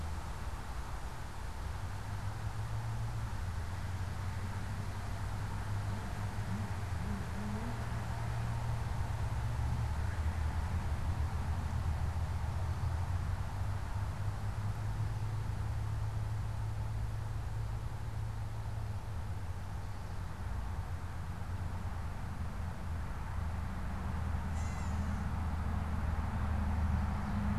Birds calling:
Gray Catbird (Dumetella carolinensis)

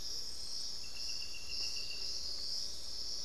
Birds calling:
Amazonian Motmot (Momotus momota)

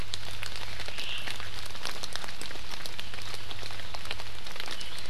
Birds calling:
Omao (Myadestes obscurus)

